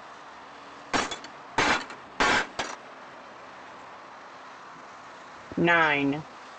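First, glass shatters. After that, someone says "nine."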